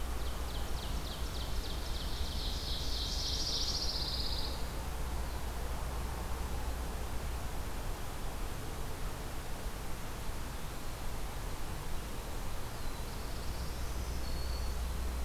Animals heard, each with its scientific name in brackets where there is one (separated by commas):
Black-throated Blue Warbler (Setophaga caerulescens), Ovenbird (Seiurus aurocapilla), Pine Warbler (Setophaga pinus), Black-throated Green Warbler (Setophaga virens)